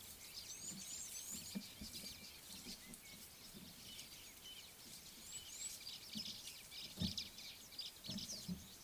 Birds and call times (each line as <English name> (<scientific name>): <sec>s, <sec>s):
Crested Francolin (Ortygornis sephaena): 4.5s
White-browed Sparrow-Weaver (Plocepasser mahali): 7.3s